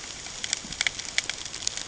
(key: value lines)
label: ambient
recorder: HydroMoth